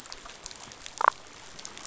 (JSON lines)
{"label": "biophony, damselfish", "recorder": "SoundTrap 500"}